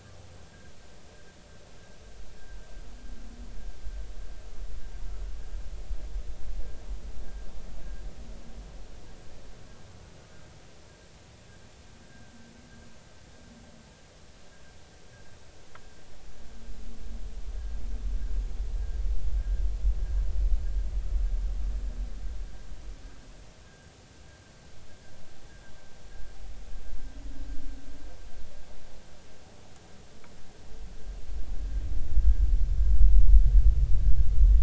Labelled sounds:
7.2	7.5	vessel noise, 1.5 to 1.7 kHz
12.1	12.3	vessel noise, 1.5 to 1.7 kHz
19.4	19.6	vessel noise, 1.5 to 1.8 kHz

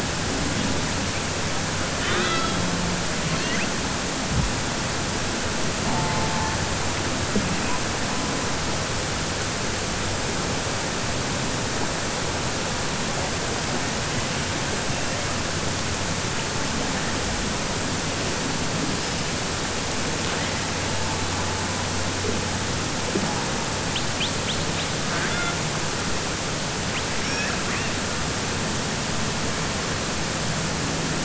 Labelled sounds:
25.0	25.6	killer whale, southern resident, 0.67 to 3.5 kHz
27.1	27.9	killer whale, southern resident, 1.2 to 3.4 kHz

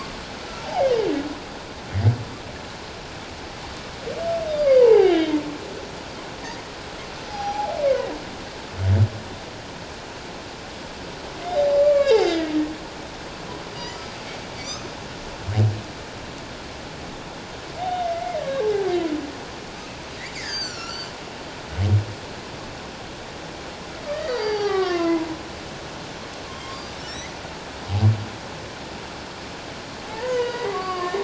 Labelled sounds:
0.6	0.9	humpback whale, 0.78 to 0.94 kHz
4.5	5.3	humpback whale, 0.78 to 4.9 kHz
7.3	7.7	humpback whale, 0.78 to 5.9 kHz
11.8	12.5	humpback whale, 1.1 to 2.8 kHz
13.7	14.1	humpback whale, 4.7 to 5.0 kHz
14.5	14.9	humpback whale, 2.2 to 6.5 kHz
17.9	18.9	humpback whale, 0.78 to 2.2 kHz
20.3	21.1	humpback whale, 1.3 to 7.6 kHz
24.1	25.3	humpback whale, 0.78 to 4.9 kHz
26.5	27.3	humpback whale, 1.7 to 4.8 kHz
30.1	31.2	humpback whale, 0.81 to 5.1 kHz

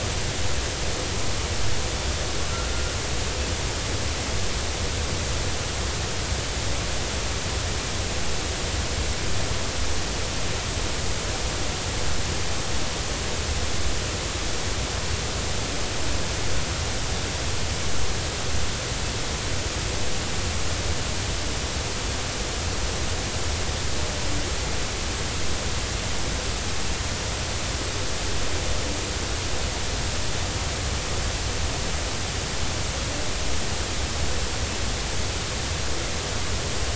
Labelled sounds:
2.5	2.8	humpback whale, 1.3 to 1.5 kHz

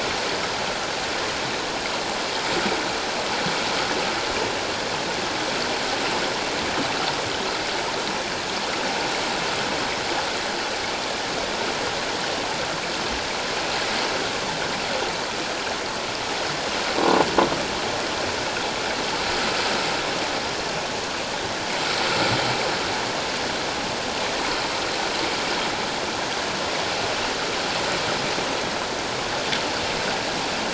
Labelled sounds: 17.0	17.2	croaking sound likely from a nearby submerged object, 0.91 to 1.1 kHz

